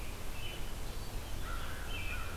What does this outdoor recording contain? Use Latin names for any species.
Turdus migratorius, Vireo olivaceus, Corvus brachyrhynchos